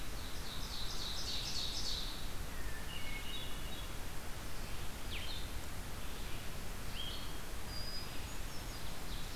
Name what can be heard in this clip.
Ovenbird, Blue-headed Vireo, Red-eyed Vireo, Hermit Thrush